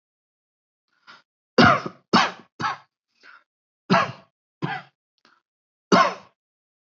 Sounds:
Cough